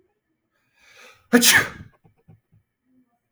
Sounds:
Sneeze